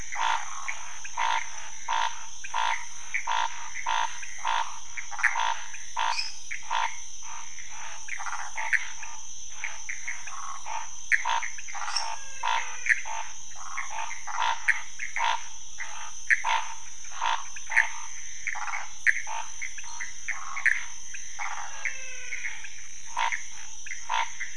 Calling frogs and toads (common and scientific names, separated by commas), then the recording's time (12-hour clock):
Pithecopus azureus, Scinax fuscovarius, waxy monkey tree frog (Phyllomedusa sauvagii), lesser tree frog (Dendropsophus minutus), menwig frog (Physalaemus albonotatus)
2:30am